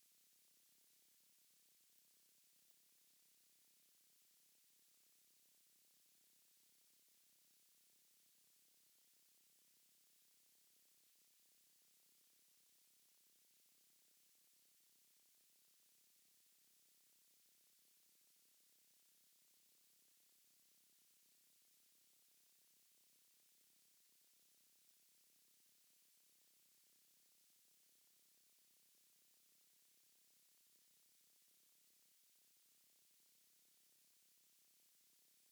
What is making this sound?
Ctenodecticus major, an orthopteran